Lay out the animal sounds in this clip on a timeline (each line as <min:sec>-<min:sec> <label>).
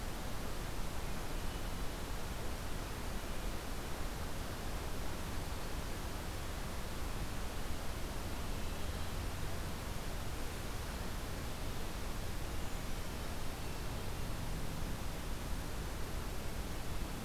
0:13.4-0:14.6 Hermit Thrush (Catharus guttatus)